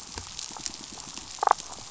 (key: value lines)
label: biophony, damselfish
recorder: SoundTrap 500

label: biophony
recorder: SoundTrap 500